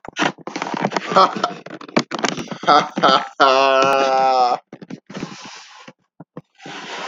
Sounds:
Laughter